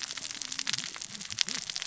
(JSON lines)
{"label": "biophony, cascading saw", "recorder": "SoundTrap 600 or HydroMoth"}